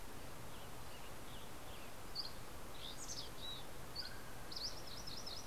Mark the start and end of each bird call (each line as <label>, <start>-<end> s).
Western Tanager (Piranga ludoviciana), 0.0-2.5 s
Dusky Flycatcher (Empidonax oberholseri), 1.9-5.5 s
Mountain Chickadee (Poecile gambeli), 2.7-3.8 s
Mountain Quail (Oreortyx pictus), 3.3-5.2 s
MacGillivray's Warbler (Geothlypis tolmiei), 4.6-5.5 s